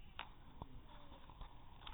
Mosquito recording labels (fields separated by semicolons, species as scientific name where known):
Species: no mosquito; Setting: cup